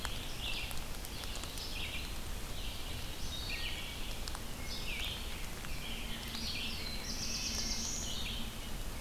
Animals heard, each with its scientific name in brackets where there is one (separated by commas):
Wood Thrush (Hylocichla mustelina), Red-eyed Vireo (Vireo olivaceus), Black-throated Blue Warbler (Setophaga caerulescens)